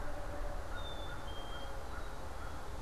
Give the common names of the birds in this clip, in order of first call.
American Crow, Black-capped Chickadee